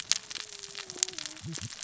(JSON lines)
{"label": "biophony, cascading saw", "recorder": "SoundTrap 600 or HydroMoth"}